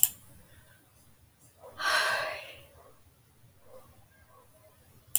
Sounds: Sigh